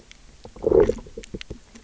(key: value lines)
label: biophony, low growl
recorder: SoundTrap 300